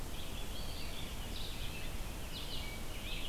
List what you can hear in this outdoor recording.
Red-eyed Vireo, unidentified call